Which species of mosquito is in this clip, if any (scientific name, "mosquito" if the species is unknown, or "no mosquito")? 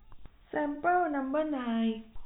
no mosquito